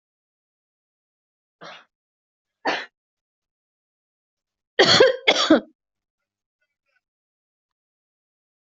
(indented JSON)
{
  "expert_labels": [
    {
      "quality": "good",
      "cough_type": "dry",
      "dyspnea": false,
      "wheezing": false,
      "stridor": false,
      "choking": false,
      "congestion": false,
      "nothing": true,
      "diagnosis": "COVID-19",
      "severity": "mild"
    }
  ]
}